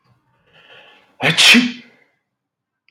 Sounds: Sneeze